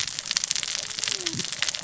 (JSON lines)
{"label": "biophony, cascading saw", "recorder": "SoundTrap 600 or HydroMoth"}